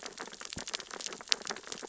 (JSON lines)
{"label": "biophony, sea urchins (Echinidae)", "recorder": "SoundTrap 600 or HydroMoth"}